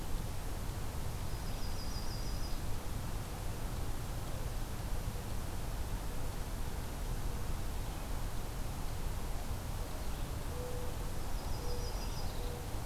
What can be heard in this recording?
Yellow-rumped Warbler, Red-eyed Vireo, Mourning Dove